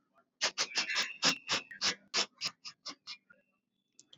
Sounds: Sniff